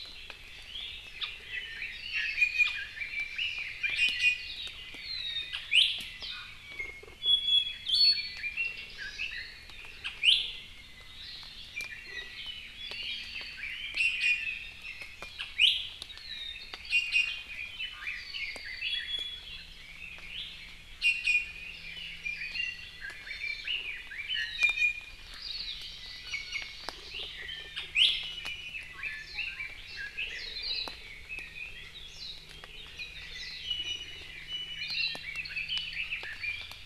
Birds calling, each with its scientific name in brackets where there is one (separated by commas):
Hawaii Amakihi (Chlorodrepanis virens), Hawaii Akepa (Loxops coccineus), Red-billed Leiothrix (Leiothrix lutea), Iiwi (Drepanis coccinea)